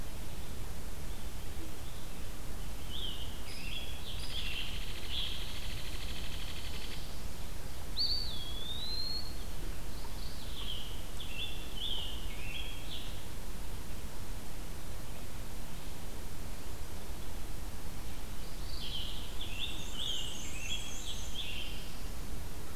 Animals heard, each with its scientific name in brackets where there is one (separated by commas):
Black-and-white Warbler (Mniotilta varia), Mourning Warbler (Geothlypis philadelphia), Scarlet Tanager (Piranga olivacea), Eastern Wood-Pewee (Contopus virens), Hairy Woodpecker (Dryobates villosus)